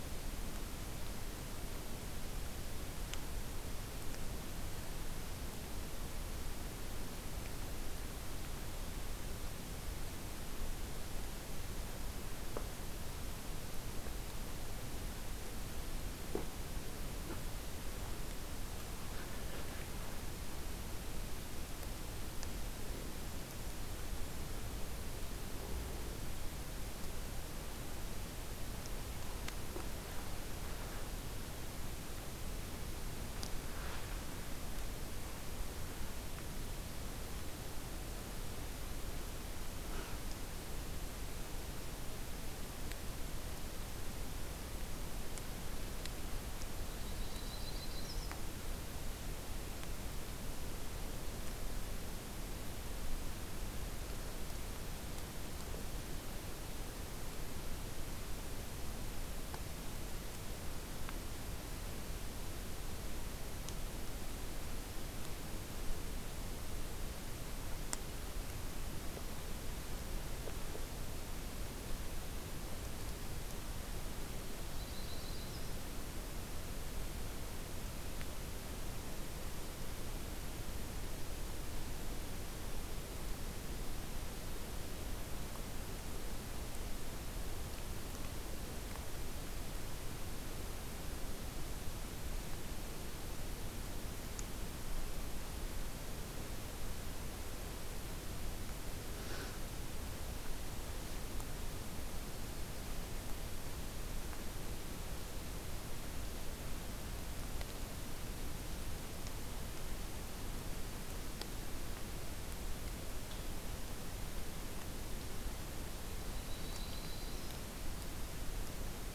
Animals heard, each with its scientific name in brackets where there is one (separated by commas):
Yellow-rumped Warbler (Setophaga coronata)